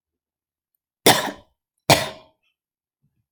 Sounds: Cough